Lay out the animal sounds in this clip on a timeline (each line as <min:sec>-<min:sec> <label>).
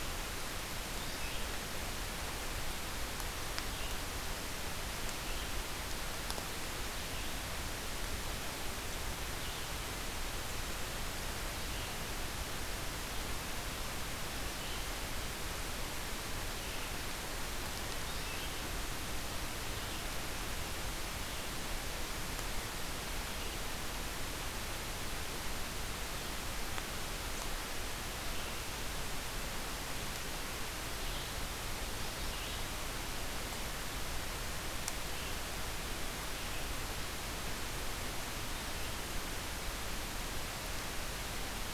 0:00.0-0:01.7 Red-eyed Vireo (Vireo olivaceus)
0:27.9-0:28.9 Red-eyed Vireo (Vireo olivaceus)
0:30.4-0:33.1 Red-eyed Vireo (Vireo olivaceus)